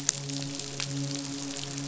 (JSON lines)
{"label": "biophony, midshipman", "recorder": "SoundTrap 500"}